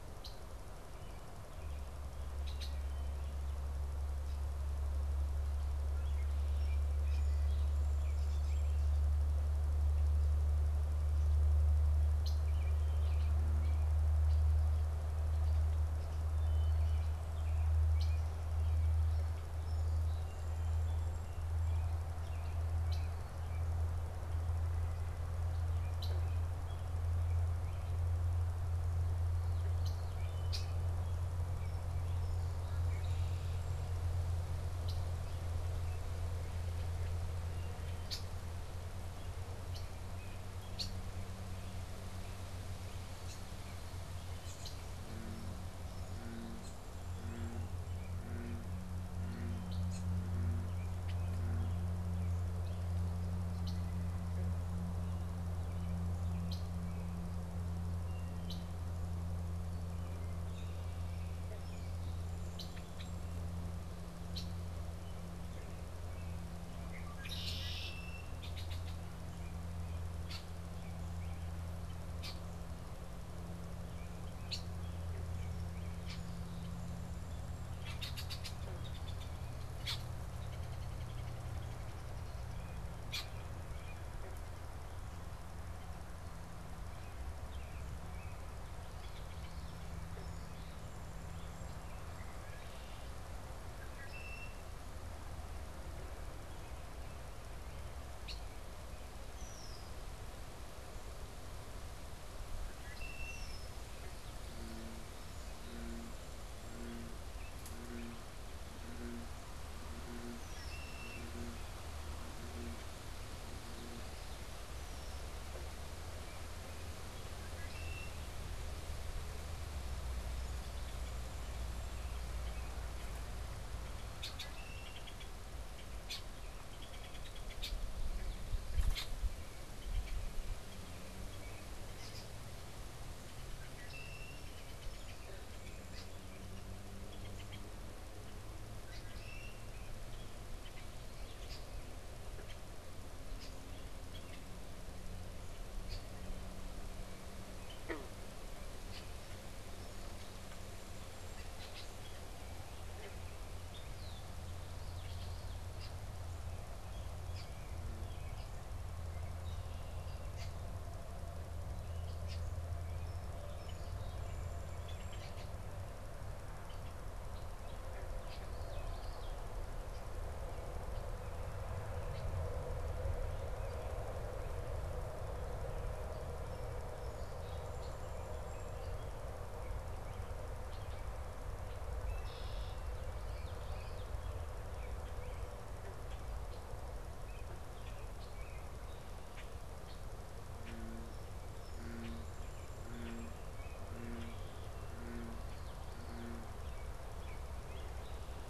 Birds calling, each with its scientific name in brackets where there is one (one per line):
Song Sparrow (Melospiza melodia)
Common Yellowthroat (Geothlypis trichas)
Red-winged Blackbird (Agelaius phoeniceus)
American Robin (Turdus migratorius)